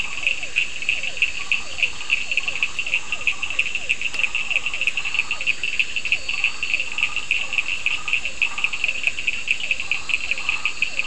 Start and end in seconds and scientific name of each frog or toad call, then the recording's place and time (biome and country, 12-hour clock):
0.0	10.7	Boana prasina
0.0	11.0	Elachistocleis bicolor
0.0	11.0	Physalaemus cuvieri
0.0	11.0	Sphaenorhynchus surdus
Atlantic Forest, Brazil, 11:15pm